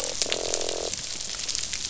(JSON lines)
{"label": "biophony, croak", "recorder": "SoundTrap 500"}